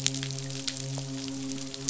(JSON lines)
{"label": "biophony, midshipman", "recorder": "SoundTrap 500"}